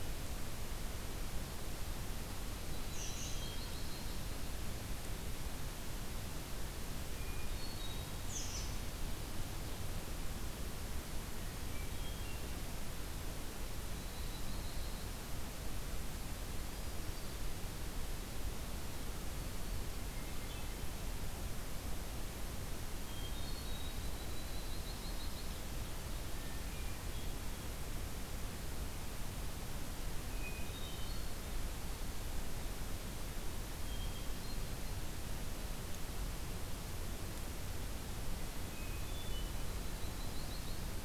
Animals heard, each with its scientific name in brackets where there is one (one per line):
Ovenbird (Seiurus aurocapilla)
American Robin (Turdus migratorius)
Yellow-rumped Warbler (Setophaga coronata)
Hermit Thrush (Catharus guttatus)